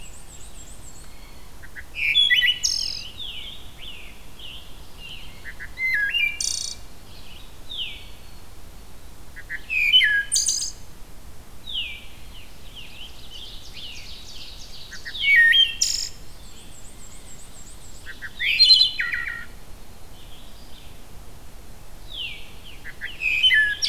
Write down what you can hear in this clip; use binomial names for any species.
Mniotilta varia, Vireo olivaceus, Cyanocitta cristata, Hylocichla mustelina, Piranga olivacea, Catharus fuscescens, Setophaga virens, Seiurus aurocapilla